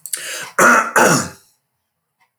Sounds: Throat clearing